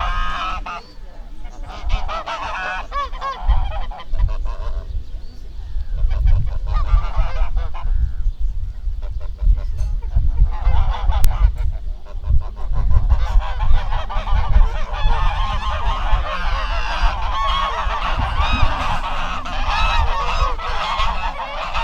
Does the animal heard here live by water?
yes